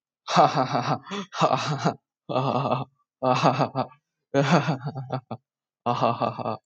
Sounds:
Laughter